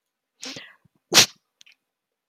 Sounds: Sneeze